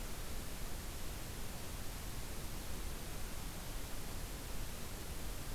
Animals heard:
forest ambience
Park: Acadia National Park